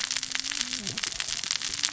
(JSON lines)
{"label": "biophony, cascading saw", "recorder": "SoundTrap 600 or HydroMoth"}